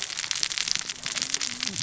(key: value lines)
label: biophony, cascading saw
recorder: SoundTrap 600 or HydroMoth